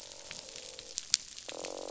{"label": "biophony, croak", "recorder": "SoundTrap 500"}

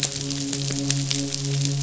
{"label": "biophony, midshipman", "recorder": "SoundTrap 500"}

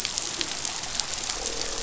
{"label": "biophony, croak", "recorder": "SoundTrap 500"}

